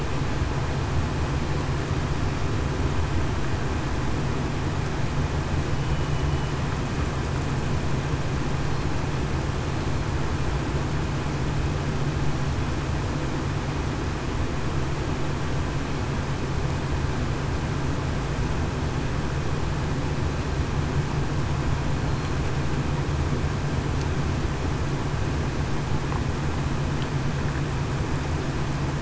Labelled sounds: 5.7	6.2	killer whale, southern resident, 2.9 to 3.0 kHz

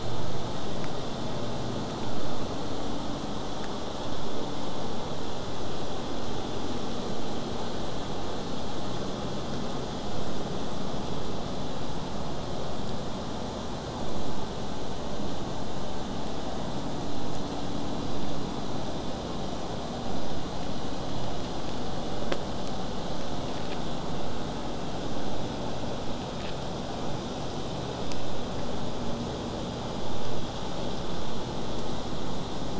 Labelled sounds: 0.0	5.0	vessel noise, 0 to 8.0 kHz
7.9	11.8	killer whale, southern resident, J pod, 7.0 to 8.0 kHz

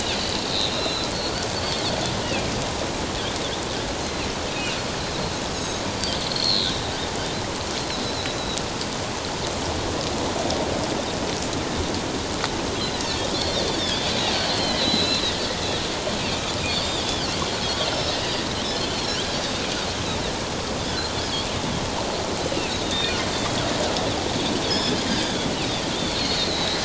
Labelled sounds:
0.1	1.8	Pacific white-sided dolphin, 2.6 to 4.8 kHz
2.2	2.5	Pacific white-sided dolphin, 2.3 to 2.9 kHz
5.5	6.7	Pacific white-sided dolphin, 3.8 to 6.8 kHz
13.0	15.4	Pacific white-sided dolphin, 2.6 to 4.5 kHz
17.6	18.2	Pacific white-sided dolphin, 3.1 to 5.4 kHz
18.9	19.4	Pacific white-sided dolphin, 1.4 to 4.4 kHz
22.8	23.1	Pacific white-sided dolphin, 3.5 to 3.8 kHz
24.6	25.4	Pacific white-sided dolphin, 3.2 to 8.0 kHz
26.0	26.8	Pacific white-sided dolphin, 3.6 to 4.5 kHz

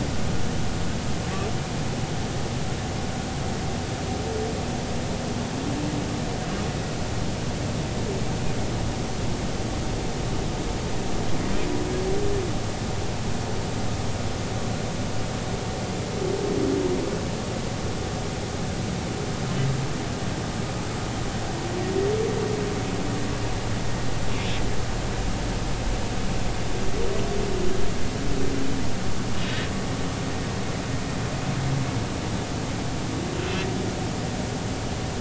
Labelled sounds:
29.3	29.7	humpback whale, 2.8 to 3.8 kHz

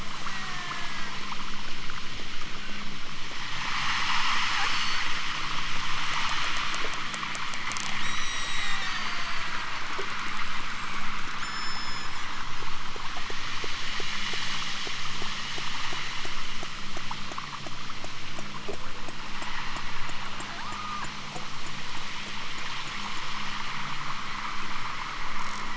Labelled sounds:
0.2	1.3	killer whale, southern Alaska resident, 0.60 to 3.4 kHz
4.7	5.1	killer whale, southern Alaska resident, 3.5 to 5.2 kHz
7.9	9.6	killer whale, southern Alaska resident, 3.4 to 8.0 kHz
10.5	12.4	killer whale, southern Alaska resident, 3.2 to 8.0 kHz
20.6	21.1	killer whale, southern Alaska resident, 0.60 to 3.3 kHz

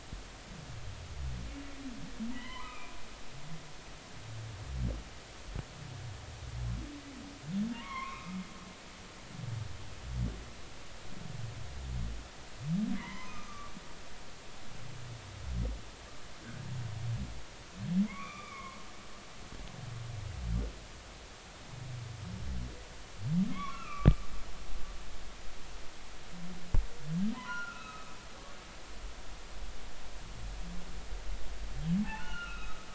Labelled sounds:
2.3	2.9	humpback whale, 0.93 to 3.2 kHz
7.7	8.4	humpback whale, 0.90 to 2.7 kHz
13.0	13.7	humpback whale, 0.90 to 3.2 kHz
18.1	18.8	humpback whale, 0.93 to 2.5 kHz
23.5	24.1	humpback whale, 0.99 to 3.5 kHz
27.3	28.1	humpback whale, 0.90 to 2.7 kHz
32.1	32.9	humpback whale, 1.2 to 3.9 kHz

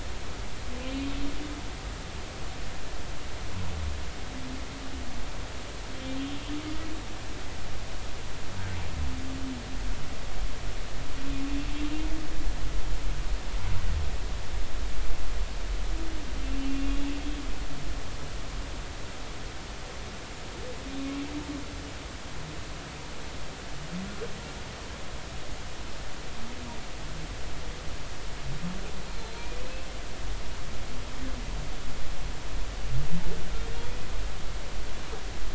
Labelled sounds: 16.4	17.1	humpback whale, 2.6 to 2.8 kHz
29.6	29.9	humpback whale, 2.5 to 2.7 kHz
33.7	34.0	humpback whale, 3.2 to 3.5 kHz

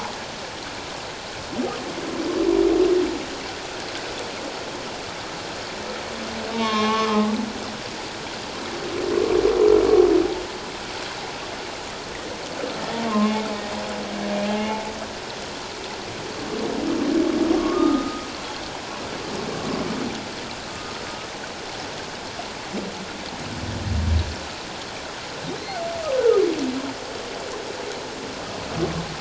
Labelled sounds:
6.5	7.3	humpback whale, 0.88 to 3.9 kHz
12.8	13.3	humpback whale, 1.0 to 1.9 kHz
14.5	14.8	humpback whale, 2.8 to 2.9 kHz
17.6	18.3	humpback whale, 1.1 to 1.3 kHz
20.7	20.9	humpback whale, 1.2 to 1.3 kHz
25.6	25.8	humpback whale, 4.0 to 4.4 kHz
26.1	26.4	humpback whale, 1.2 to 1.6 kHz

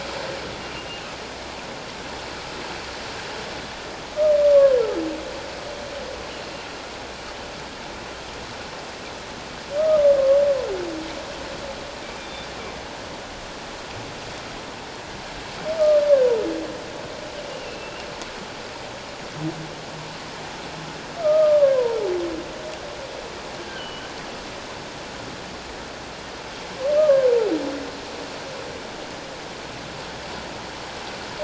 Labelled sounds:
4.4	4.8	humpback whale, 1.0 to 1.2 kHz
12.2	12.5	humpback whale, 3.5 to 3.6 kHz
17.5	17.9	humpback whale, 2.6 to 2.9 kHz
21.2	21.7	humpback whale, 1.0 to 1.4 kHz
23.6	24.0	humpback whale, 1.4 to 3.2 kHz
26.9	27.3	humpback whale, 1.0 to 1.3 kHz

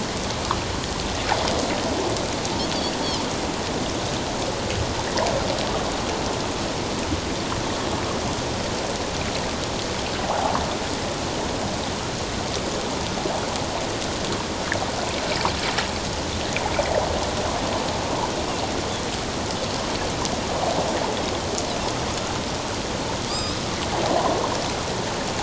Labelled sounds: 10.2	10.6	water noise, 0.78 to 0.97 kHz
23.3	23.6	Pacific white-sided dolphin, 1.1 to 5.3 kHz

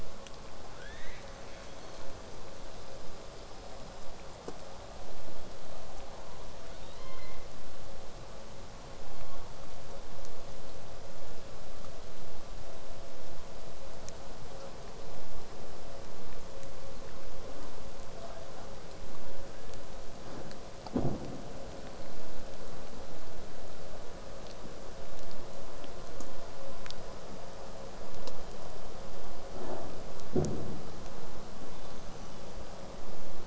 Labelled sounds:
0.8	1.3	killer whale, southern resident, 1.2 to 6.4 kHz
1.4	2.3	killer whale, southern resident, call S16, 1.0 to 6.5 kHz
17.6	18.7	killer whale, southern resident, L pod, call S22, 0.50 to 5.6 kHz
31.8	32.4	killer whale, southern resident, whistle, 2.7 to 6.5 kHz

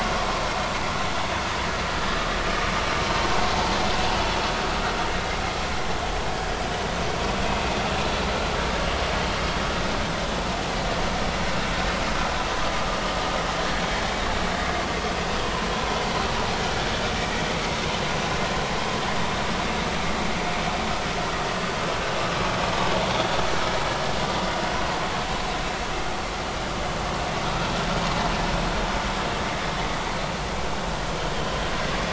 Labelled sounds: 10.0	10.3	vessel noise, 3.5 to 3.7 kHz

